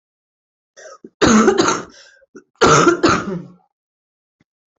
{"expert_labels": [{"quality": "good", "cough_type": "wet", "dyspnea": false, "wheezing": false, "stridor": false, "choking": false, "congestion": false, "nothing": true, "diagnosis": "lower respiratory tract infection", "severity": "mild"}], "age": 32, "gender": "female", "respiratory_condition": true, "fever_muscle_pain": false, "status": "COVID-19"}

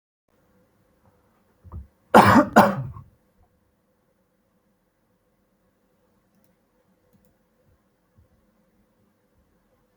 {"expert_labels": [{"quality": "good", "cough_type": "dry", "dyspnea": false, "wheezing": false, "stridor": false, "choking": false, "congestion": false, "nothing": true, "diagnosis": "healthy cough", "severity": "pseudocough/healthy cough"}], "age": 29, "gender": "male", "respiratory_condition": false, "fever_muscle_pain": false, "status": "healthy"}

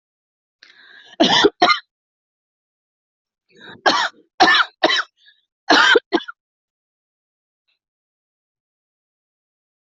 {"expert_labels": [{"quality": "good", "cough_type": "dry", "dyspnea": false, "wheezing": false, "stridor": false, "choking": false, "congestion": false, "nothing": true, "diagnosis": "upper respiratory tract infection", "severity": "mild"}], "age": 46, "gender": "female", "respiratory_condition": false, "fever_muscle_pain": false, "status": "healthy"}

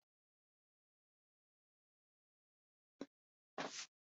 {"expert_labels": [{"quality": "no cough present", "dyspnea": false, "wheezing": false, "stridor": false, "choking": false, "congestion": false, "nothing": false}], "age": 79, "gender": "female", "respiratory_condition": false, "fever_muscle_pain": false, "status": "COVID-19"}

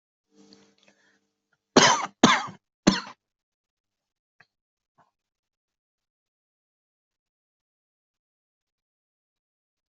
{"expert_labels": [{"quality": "good", "cough_type": "dry", "dyspnea": false, "wheezing": false, "stridor": false, "choking": false, "congestion": false, "nothing": true, "diagnosis": "COVID-19", "severity": "mild"}], "age": 31, "gender": "male", "respiratory_condition": true, "fever_muscle_pain": false, "status": "symptomatic"}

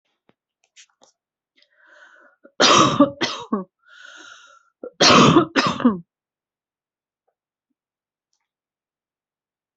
{"expert_labels": [{"quality": "good", "cough_type": "wet", "dyspnea": false, "wheezing": false, "stridor": false, "choking": false, "congestion": true, "nothing": false, "diagnosis": "lower respiratory tract infection", "severity": "mild"}], "age": 38, "gender": "female", "respiratory_condition": false, "fever_muscle_pain": false, "status": "symptomatic"}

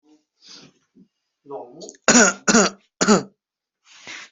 {"expert_labels": [{"quality": "good", "cough_type": "wet", "dyspnea": false, "wheezing": false, "stridor": false, "choking": false, "congestion": false, "nothing": true, "diagnosis": "lower respiratory tract infection", "severity": "mild"}], "age": 18, "gender": "female", "respiratory_condition": false, "fever_muscle_pain": false, "status": "healthy"}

